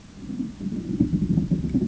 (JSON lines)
{"label": "ambient", "recorder": "HydroMoth"}